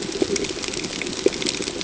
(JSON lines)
{"label": "ambient", "recorder": "HydroMoth"}